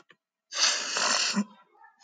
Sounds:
Sniff